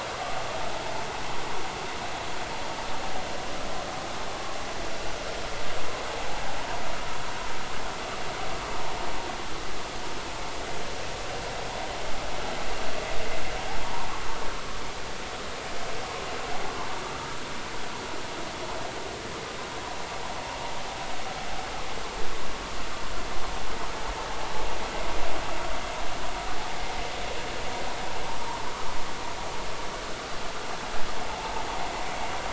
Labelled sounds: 13.8	14.1	vessel noise, 0.83 to 1.2 kHz

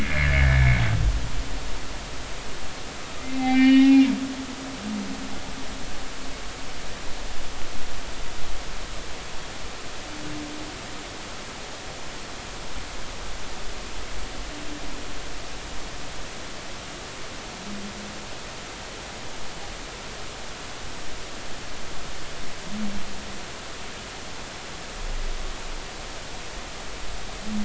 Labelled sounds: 0.0	0.7	humpback whale, 1.6 to 2.3 kHz
3.2	4.1	humpback whale, 1.8 to 3.8 kHz

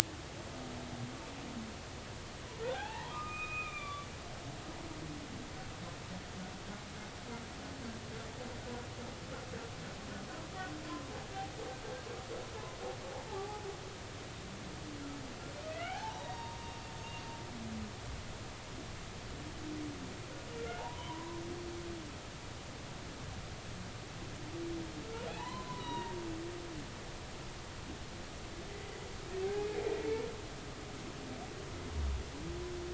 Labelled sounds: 2.6	4.1	humpback whale, 0.80 to 3.6 kHz
13.1	13.7	humpback whale, 0.80 to 0.96 kHz
15.7	16.6	humpback whale, 0.80 to 4.0 kHz
20.8	21.4	humpback whale, 0.80 to 1.1 kHz
25.3	26.1	humpback whale, 0.80 to 4.2 kHz
29.4	29.7	humpback whale, 0.80 to 0.90 kHz

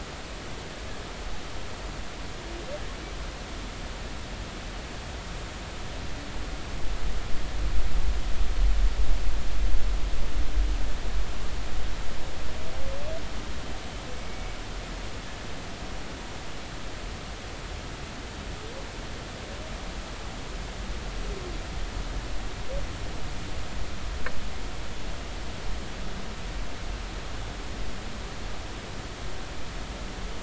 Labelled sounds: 14.1	14.5	humpback whale, 2.2 to 2.3 kHz

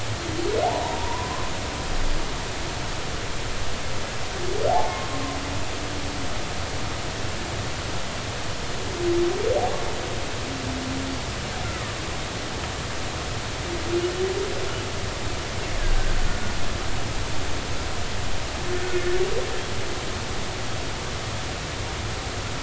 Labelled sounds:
0.6	1.5	humpback whale, 0.80 to 1.2 kHz
18.9	19.2	humpback whale, 1.7 to 1.9 kHz

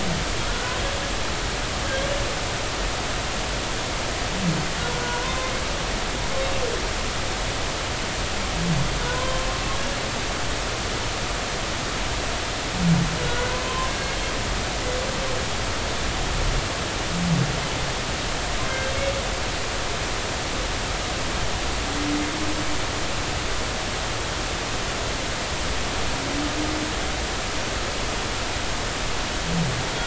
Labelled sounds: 0.5	0.8	humpback whale, 1.4 to 1.6 kHz
4.9	5.5	humpback whale, 0.93 to 1.5 kHz
9.1	9.5	humpback whale, 0.93 to 1.1 kHz
13.6	14.2	humpback whale, 0.99 to 3.1 kHz

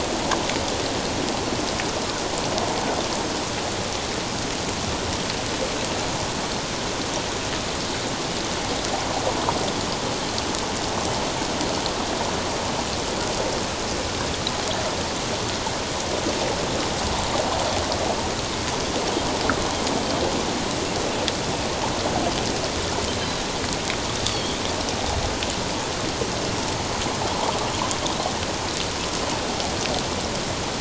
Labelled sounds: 24.3	24.6	Pacific white-sided dolphin, 3.1 to 3.5 kHz

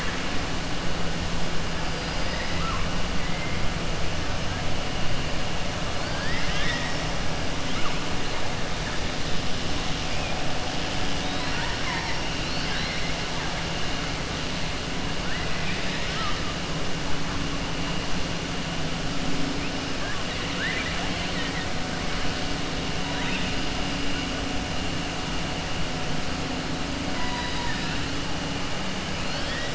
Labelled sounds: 2.2	2.8	killer whale, southern resident, 1.0 to 2.6 kHz
5.9	7.1	killer whale, southern resident, 0.95 to 6.1 kHz
11.2	12.2	killer whale, southern resident, 0.91 to 4.2 kHz
15.2	16.4	killer whale, southern resident, 1.2 to 5.1 kHz
20.2	21.7	killer whale, southern resident, 1.3 to 4.4 kHz
23.1	23.5	killer whale, southern resident, 0.95 to 3.9 kHz
27.1	28.0	killer whale, southern resident, 0.92 to 5.0 kHz
29.2	29.7	killer whale, southern resident, 1.6 to 5.3 kHz

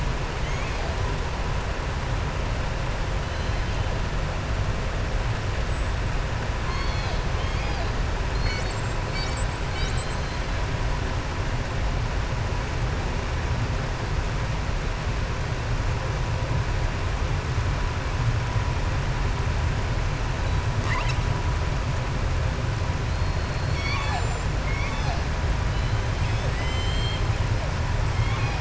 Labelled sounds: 6.6	7.2	killer whale, southern resident, 1.1 to 6.6 kHz
23.5	25.2	killer whale, southern resident, 0.70 to 7.6 kHz
26.1	27.3	killer whale, southern resident, 1.9 to 7.6 kHz
28.1	28.5	killer whale, southern resident, 0.85 to 5.0 kHz

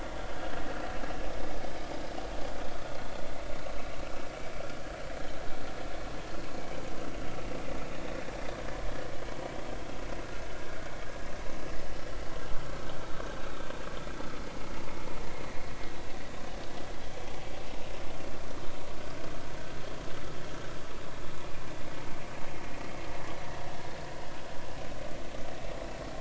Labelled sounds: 7.9	8.1	vessel noise, 3.6 to 3.8 kHz

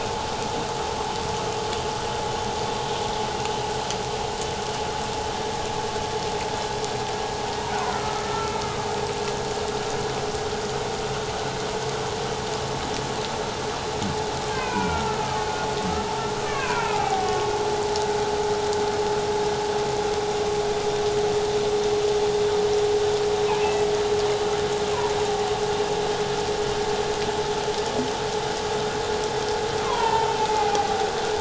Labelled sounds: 7.7	8.6	humpback whale, 1.2 to 1.5 kHz
14.5	15.5	humpback whale, 0.91 to 2.6 kHz
16.4	17.5	humpback whale, 0.78 to 2.8 kHz
23.4	23.8	humpback whale, 2.2 to 2.7 kHz
29.8	30.9	humpback whale, 0.78 to 2.7 kHz

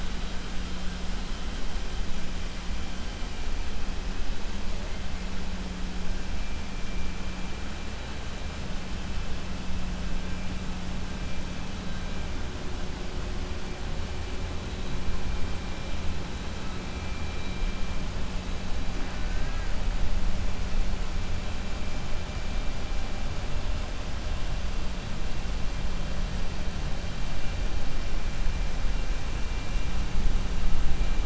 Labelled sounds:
18.9	19.9	killer whale, 0.60 to 2.2 kHz

